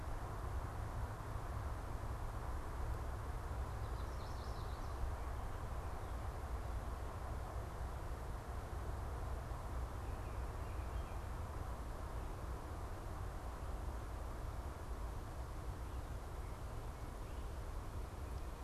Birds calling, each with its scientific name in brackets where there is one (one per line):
Chestnut-sided Warbler (Setophaga pensylvanica)